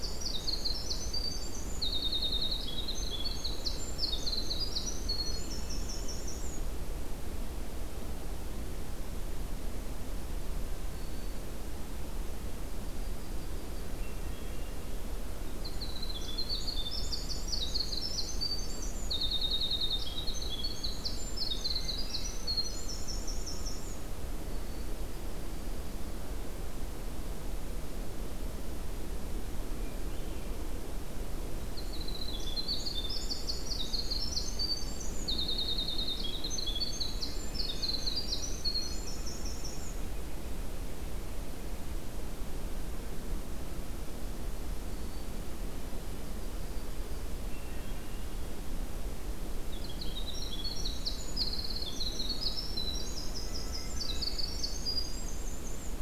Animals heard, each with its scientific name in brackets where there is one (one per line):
Winter Wren (Troglodytes hiemalis)
Yellow-rumped Warbler (Setophaga coronata)
Black-throated Green Warbler (Setophaga virens)
Northern Flicker (Colaptes auratus)
Hermit Thrush (Catharus guttatus)